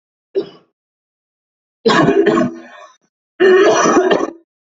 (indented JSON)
{
  "expert_labels": [
    {
      "quality": "good",
      "cough_type": "wet",
      "dyspnea": false,
      "wheezing": false,
      "stridor": false,
      "choking": false,
      "congestion": false,
      "nothing": true,
      "diagnosis": "lower respiratory tract infection",
      "severity": "mild"
    }
  ],
  "age": 24,
  "gender": "male",
  "respiratory_condition": false,
  "fever_muscle_pain": false,
  "status": "healthy"
}